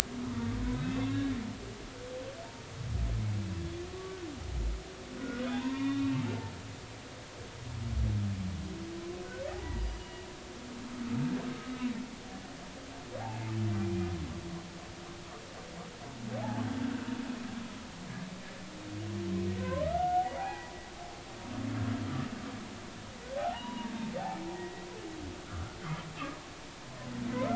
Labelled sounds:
0.3	1.3	humpback whale, 1.4 to 2.8 kHz
3.9	4.2	humpback whale, 1.1 to 1.2 kHz
5.2	6.0	humpback whale, 0.80 to 3.4 kHz
9.6	10.2	humpback whale, 0.83 to 2.9 kHz
13.8	14.1	humpback whale, 2.3 to 2.5 kHz
16.8	17.1	humpback whale, 1.4 to 1.7 kHz
19.6	20.8	humpback whale, 0.80 to 1.5 kHz
23.0	23.9	humpback whale, 0.80 to 3.9 kHz
24.5	24.9	humpback whale, 1.8 to 2.0 kHz
25.5	25.8	humpback whale, 1.1 to 1.5 kHz

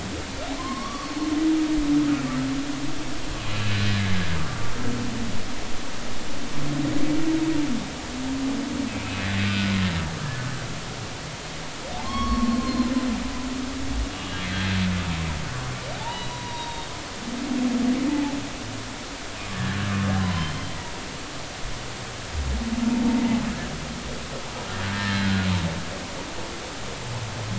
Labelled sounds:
0.6	1.3	humpback whale, 0.96 to 4.4 kHz
3.6	3.9	humpback whale, 1.6 to 1.8 kHz
8.9	9.7	humpback whale, 1.4 to 2.7 kHz
12.0	12.9	humpback whale, 0.99 to 4.4 kHz
14.2	14.4	humpback whale, 2.8 to 3.0 kHz
16.0	16.9	humpback whale, 0.80 to 4.0 kHz
17.3	17.8	humpback whale, 0.90 to 1.1 kHz
19.5	19.8	humpback whale, 1.6 to 1.9 kHz
20.2	20.5	humpback whale, 0.96 to 1.1 kHz
24.9	25.5	humpback whale, 1.4 to 1.9 kHz

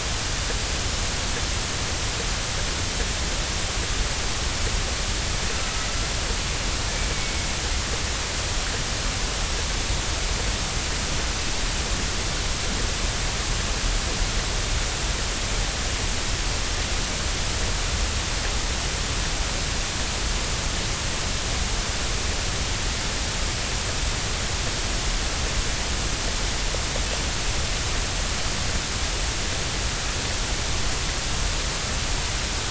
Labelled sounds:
7.1	7.6	killer whale, 2.1 to 2.3 kHz

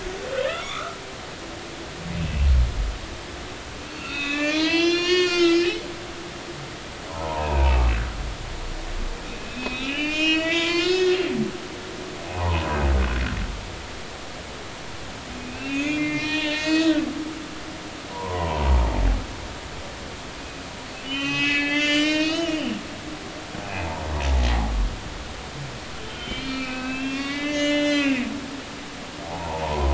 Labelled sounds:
0.5	1.0	humpback whale, 1.1 to 3.6 kHz
2.1	2.5	humpback whale, 2.5 to 2.7 kHz
3.8	5.8	humpback whale, 0.90 to 7.3 kHz
7.1	7.8	humpback whale, 0.80 to 2.7 kHz
9.4	11.2	humpback whale, 0.96 to 7.5 kHz
12.3	12.8	humpback whale, 0.80 to 1.1 kHz
15.4	17.0	humpback whale, 0.86 to 6.8 kHz
18.1	18.7	humpback whale, 0.83 to 1.1 kHz
20.9	22.7	humpback whale, 1.1 to 6.6 kHz
23.7	24.7	humpback whale, 0.80 to 1.1 kHz
26.0	28.3	humpback whale, 1.1 to 6.5 kHz
29.2	29.9	humpback whale, 0.80 to 1.1 kHz

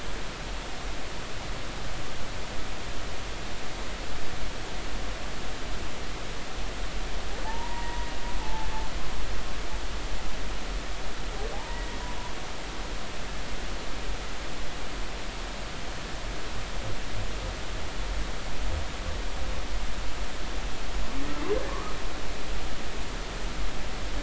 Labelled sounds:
7.4	8.7	humpback whale, 0.83 to 2.0 kHz
11.5	11.8	humpback whale, 0.80 to 1.1 kHz
21.7	21.9	humpback whale, 0.99 to 1.3 kHz

